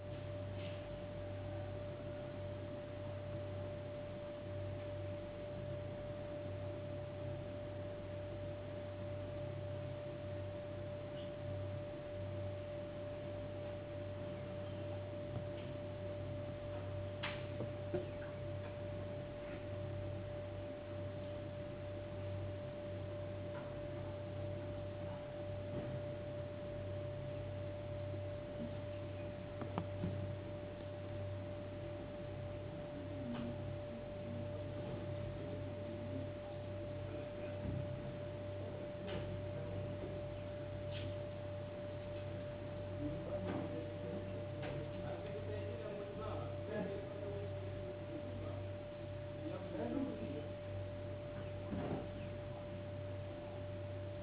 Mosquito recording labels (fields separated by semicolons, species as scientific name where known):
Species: no mosquito; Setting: insect culture